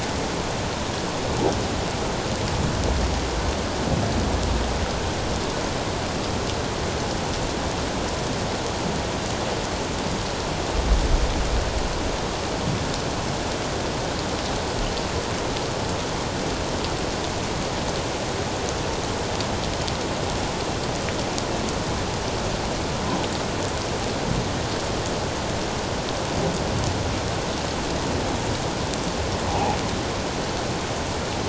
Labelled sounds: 29.5	29.8	humpback whale, 0.78 to 0.97 kHz

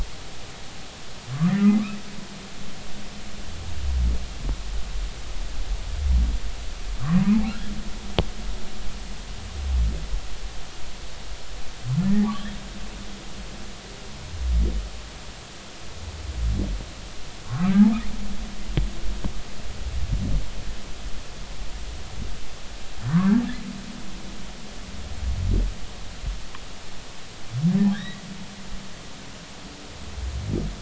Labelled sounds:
1.5	1.8	humpback whale, 1.8 to 2.1 kHz
7.5	7.7	humpback whale, 1.3 to 1.8 kHz
12.0	12.3	humpback whale, 1.7 to 1.9 kHz
17.4	17.7	humpback whale, 0.96 to 1.6 kHz
23.1	23.4	humpback whale, 0.93 to 1.8 kHz
27.9	28.2	humpback whale, 1.5 to 2.1 kHz

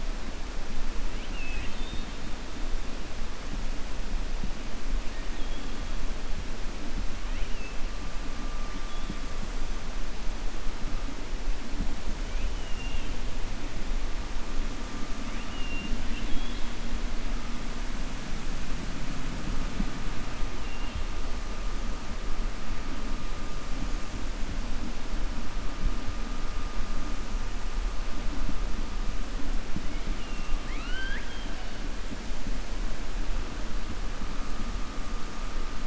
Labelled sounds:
1.1	2.1	killer whale, 1.9 to 4.5 kHz
12.3	13.1	killer whale, 2.3 to 3.3 kHz
15.2	16.7	killer whale, 1.6 to 4.3 kHz
30.1	31.5	killer whale, 1.3 to 4.5 kHz

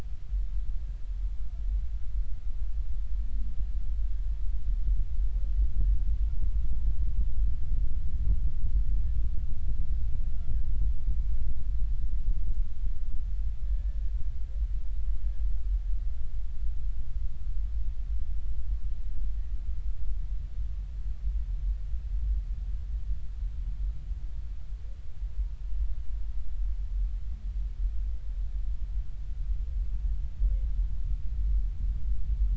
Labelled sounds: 13.7	14.0	humpback whale, 1.7 to 1.8 kHz

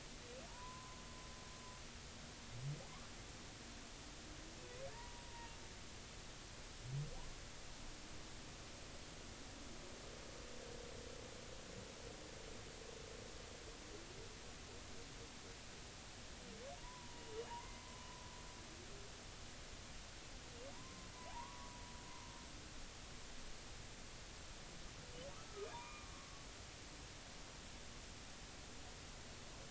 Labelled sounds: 0.5	1.0	humpback whale, 0.83 to 1.1 kHz
4.9	5.6	humpback whale, 0.86 to 1.0 kHz
16.8	18.1	humpback whale, 0.86 to 2.1 kHz
20.7	21.7	humpback whale, 0.80 to 1.2 kHz
25.3	26.1	humpback whale, 1.1 to 2.5 kHz

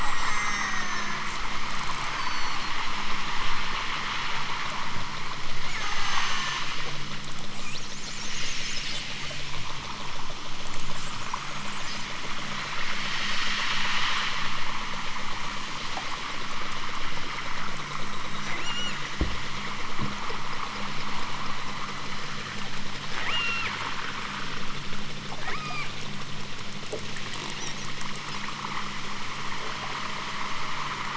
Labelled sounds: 0.1	1.3	killer whale, southern Alaska resident, 0.50 to 7.3 kHz
2.1	2.8	killer whale, southern Alaska resident, 3.5 to 6.7 kHz
5.7	6.7	killer whale, southern Alaska resident, 5.0 to 8.0 kHz
18.5	19.1	killer whale, southern Alaska resident, 2.2 to 8.0 kHz
23.2	23.7	killer whale, southern Alaska resident, 1.9 to 8.0 kHz
25.4	26.0	killer whale, southern Alaska resident, 0.60 to 8.0 kHz
27.1	28.1	killer whale, southern Alaska resident, 2.0 to 4.3 kHz

